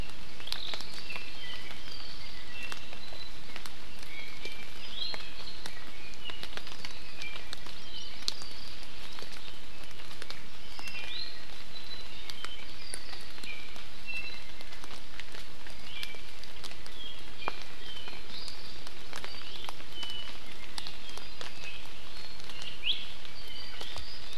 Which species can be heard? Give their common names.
Apapane, Iiwi, Hawaii Amakihi